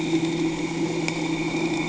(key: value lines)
label: anthrophony, boat engine
recorder: HydroMoth